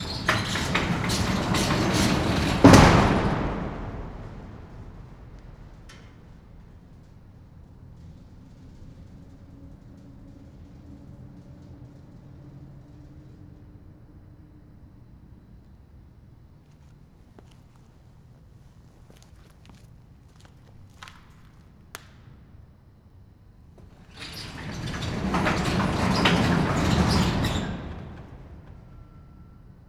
Is someone walking around?
yes